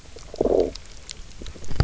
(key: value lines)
label: biophony, low growl
recorder: SoundTrap 300